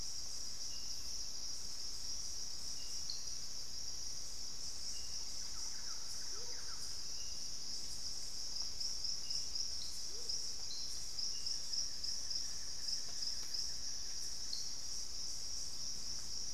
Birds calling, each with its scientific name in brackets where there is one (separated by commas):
Thrush-like Wren (Campylorhynchus turdinus), Buff-throated Woodcreeper (Xiphorhynchus guttatus), Amazonian Motmot (Momotus momota)